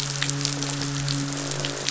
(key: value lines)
label: biophony, midshipman
recorder: SoundTrap 500